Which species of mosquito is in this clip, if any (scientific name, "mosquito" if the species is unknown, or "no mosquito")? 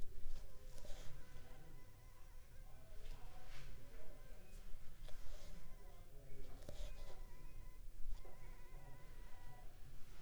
Anopheles funestus s.l.